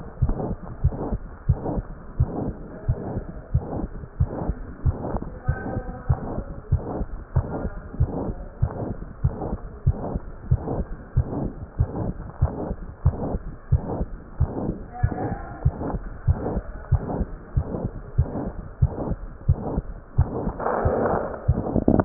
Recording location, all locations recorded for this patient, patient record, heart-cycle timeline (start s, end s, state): mitral valve (MV)
aortic valve (AV)+pulmonary valve (PV)+tricuspid valve (TV)+mitral valve (MV)
#Age: Child
#Sex: Male
#Height: 126.0 cm
#Weight: 24.7 kg
#Pregnancy status: False
#Murmur: Present
#Murmur locations: mitral valve (MV)+pulmonary valve (PV)+tricuspid valve (TV)
#Most audible location: mitral valve (MV)
#Systolic murmur timing: Holosystolic
#Systolic murmur shape: Plateau
#Systolic murmur grading: II/VI
#Systolic murmur pitch: Medium
#Systolic murmur quality: Blowing
#Diastolic murmur timing: nan
#Diastolic murmur shape: nan
#Diastolic murmur grading: nan
#Diastolic murmur pitch: nan
#Diastolic murmur quality: nan
#Outcome: Abnormal
#Campaign: 2015 screening campaign
0.00	0.56	unannotated
0.56	0.81	diastole
0.81	0.96	S1
0.96	1.06	systole
1.06	1.20	S2
1.20	1.48	diastole
1.48	1.62	S1
1.62	1.70	systole
1.70	1.84	S2
1.84	2.16	diastole
2.16	2.30	S1
2.30	2.36	systole
2.36	2.52	S2
2.52	2.84	diastole
2.84	3.00	S1
3.00	3.12	systole
3.12	3.24	S2
3.24	3.54	diastole
3.54	3.64	S1
3.64	3.72	systole
3.72	3.88	S2
3.88	4.20	diastole
4.20	4.32	S1
4.32	4.42	systole
4.42	4.56	S2
4.56	4.86	diastole
4.86	5.00	S1
5.00	5.10	systole
5.10	5.22	S2
5.22	5.48	diastole
5.48	5.60	S1
5.60	5.70	systole
5.70	5.85	S2
5.85	6.08	diastole
6.08	6.22	S1
6.22	6.34	systole
6.34	6.46	S2
6.46	6.72	diastole
6.72	6.86	S1
6.86	6.94	systole
6.94	7.06	S2
7.06	7.36	diastole
7.36	7.50	S1
7.50	7.62	systole
7.62	7.72	S2
7.72	7.98	diastole
7.98	8.10	S1
8.10	8.23	systole
8.23	8.33	S2
8.33	8.61	diastole
8.61	8.70	S1
8.70	8.78	systole
8.78	8.96	S2
8.96	9.22	diastole
9.22	9.34	S1
9.34	9.47	systole
9.47	9.59	S2
9.59	9.84	diastole
9.84	10.00	S1
10.00	10.10	systole
10.10	10.22	S2
10.22	10.50	diastole
10.50	10.64	S1
10.64	10.70	systole
10.70	10.86	S2
10.86	11.16	diastole
11.16	11.28	S1
11.28	11.34	systole
11.34	11.50	S2
11.50	11.76	diastole
11.76	11.90	S1
11.90	12.00	systole
12.00	12.13	S2
12.13	12.40	diastole
12.40	12.54	S1
12.54	12.64	systole
12.64	12.77	S2
12.77	13.01	diastole
13.01	13.16	S1
13.16	13.28	systole
13.28	13.40	S2
13.40	13.70	diastole
13.70	13.84	S1
13.84	13.94	systole
13.94	14.08	S2
14.08	14.38	diastole
14.38	14.52	S1
14.52	14.62	systole
14.62	14.76	S2
14.76	14.99	diastole
14.99	15.12	S1
15.12	15.27	systole
15.27	15.37	S2
15.37	15.62	diastole
15.62	15.76	S1
15.76	15.90	systole
15.90	16.02	S2
16.02	16.25	diastole
16.25	16.42	S1
16.42	16.52	systole
16.52	16.64	S2
16.64	16.90	diastole
16.90	17.04	S1
17.04	17.16	systole
17.16	17.27	S2
17.27	17.54	diastole
17.54	17.65	S1
17.65	17.80	systole
17.80	17.90	S2
17.90	18.16	diastole
18.16	18.28	S1
18.28	18.42	systole
18.42	18.52	S2
18.52	18.79	diastole
18.79	18.96	S1
18.96	19.08	systole
19.08	19.18	S2
19.18	19.48	diastole
19.48	19.64	S1
19.64	19.74	systole
19.74	19.86	S2
19.86	20.14	diastole
20.14	20.34	S1
20.34	20.44	systole
20.44	20.56	S2
20.56	20.84	diastole
20.84	22.05	unannotated